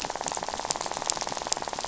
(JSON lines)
{"label": "biophony, rattle", "recorder": "SoundTrap 500"}